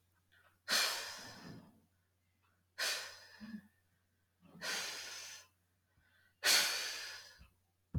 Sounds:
Sigh